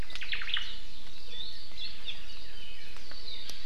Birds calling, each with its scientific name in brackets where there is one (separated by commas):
Apapane (Himatione sanguinea), Omao (Myadestes obscurus)